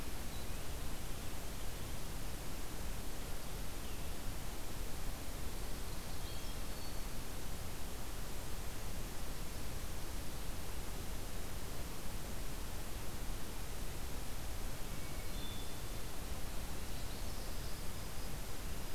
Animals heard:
Common Yellowthroat (Geothlypis trichas), White-throated Sparrow (Zonotrichia albicollis), Hermit Thrush (Catharus guttatus)

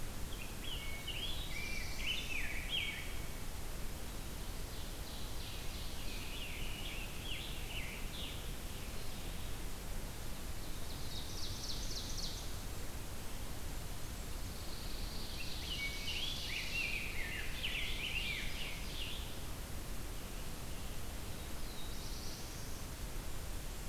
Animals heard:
Pine Warbler (Setophaga pinus), Black-throated Blue Warbler (Setophaga caerulescens), Scarlet Tanager (Piranga olivacea), Ovenbird (Seiurus aurocapilla), Rose-breasted Grosbeak (Pheucticus ludovicianus)

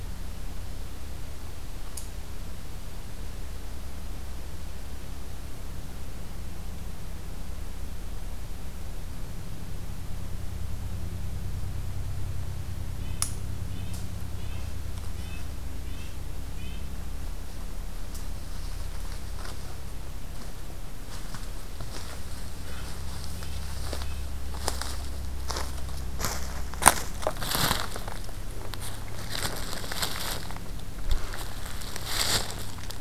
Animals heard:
Red-breasted Nuthatch (Sitta canadensis)

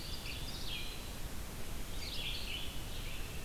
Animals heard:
Eastern Wood-Pewee (Contopus virens), Red-eyed Vireo (Vireo olivaceus), Ovenbird (Seiurus aurocapilla)

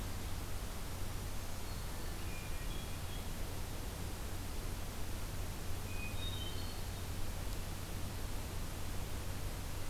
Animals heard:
Hermit Thrush (Catharus guttatus), Black-throated Green Warbler (Setophaga virens)

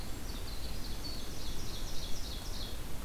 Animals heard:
Winter Wren (Troglodytes hiemalis), Ovenbird (Seiurus aurocapilla)

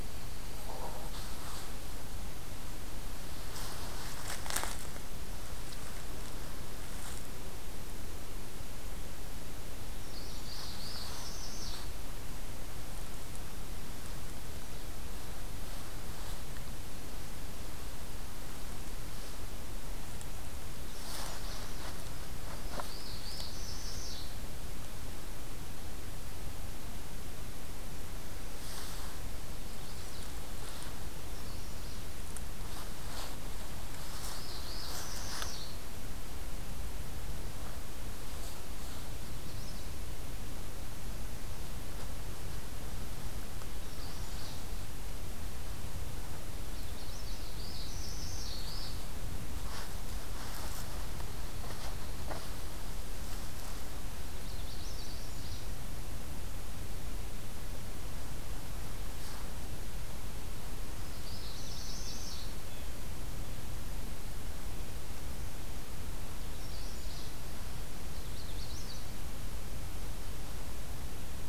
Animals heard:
Magnolia Warbler (Setophaga magnolia), Northern Parula (Setophaga americana), Blue Jay (Cyanocitta cristata)

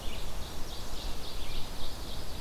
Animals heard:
Ovenbird (Seiurus aurocapilla), Red-eyed Vireo (Vireo olivaceus), Black-and-white Warbler (Mniotilta varia)

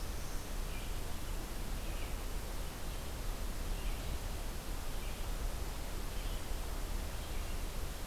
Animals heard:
Red-eyed Vireo (Vireo olivaceus)

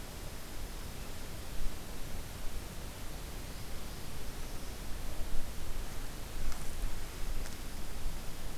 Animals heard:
Black-throated Blue Warbler (Setophaga caerulescens)

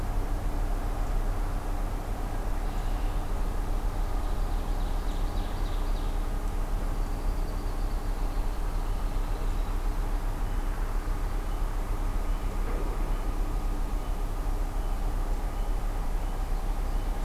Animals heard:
Ovenbird (Seiurus aurocapilla), Red-winged Blackbird (Agelaius phoeniceus)

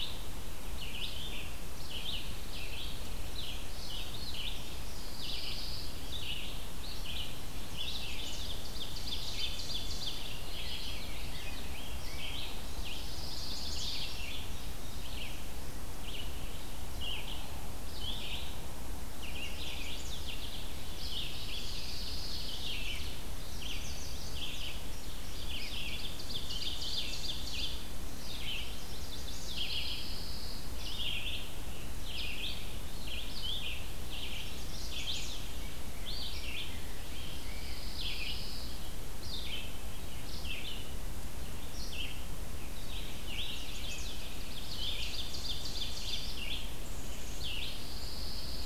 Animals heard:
Ovenbird (Seiurus aurocapilla), Pine Warbler (Setophaga pinus), Red-eyed Vireo (Vireo olivaceus), Rose-breasted Grosbeak (Pheucticus ludovicianus), Chestnut-sided Warbler (Setophaga pensylvanica)

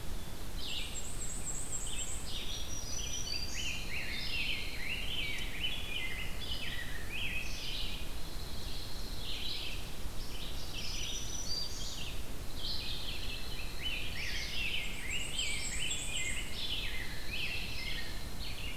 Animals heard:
Black-and-white Warbler (Mniotilta varia), Red-eyed Vireo (Vireo olivaceus), Black-throated Green Warbler (Setophaga virens), Dark-eyed Junco (Junco hyemalis), Rose-breasted Grosbeak (Pheucticus ludovicianus)

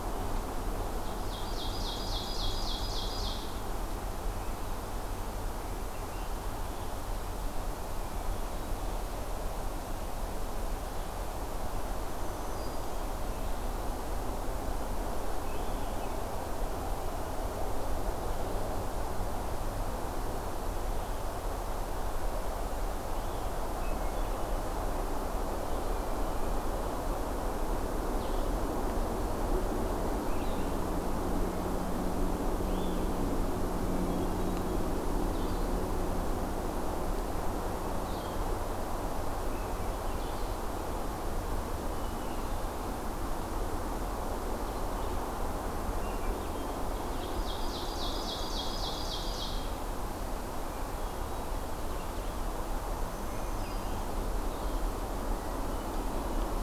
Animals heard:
Red-eyed Vireo (Vireo olivaceus), Hermit Thrush (Catharus guttatus), Ovenbird (Seiurus aurocapilla), Black-throated Green Warbler (Setophaga virens), Blue-headed Vireo (Vireo solitarius), Swainson's Thrush (Catharus ustulatus)

